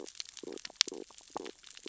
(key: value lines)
label: biophony, stridulation
recorder: SoundTrap 600 or HydroMoth